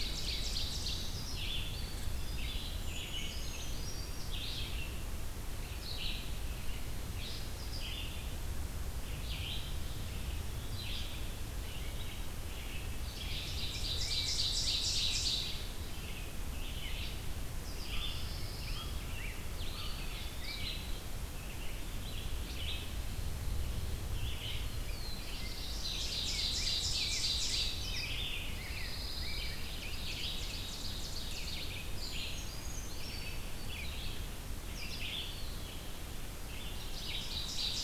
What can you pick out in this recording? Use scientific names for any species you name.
Seiurus aurocapilla, Vireo olivaceus, Contopus virens, Certhia americana, Pheucticus ludovicianus, Corvus brachyrhynchos, Setophaga pinus, Setophaga caerulescens